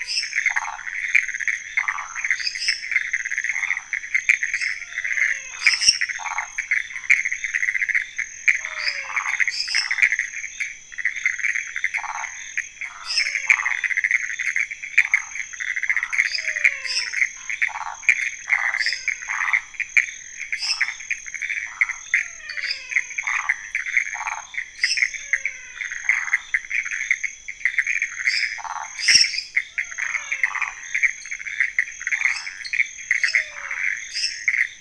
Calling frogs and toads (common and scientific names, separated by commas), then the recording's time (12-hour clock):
Pithecopus azureus, lesser tree frog (Dendropsophus minutus), waxy monkey tree frog (Phyllomedusa sauvagii), menwig frog (Physalaemus albonotatus), dwarf tree frog (Dendropsophus nanus)
12:00am